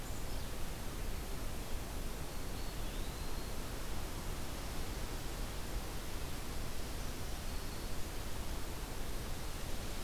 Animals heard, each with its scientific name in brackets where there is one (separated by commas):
Black-throated Green Warbler (Setophaga virens), Eastern Wood-Pewee (Contopus virens)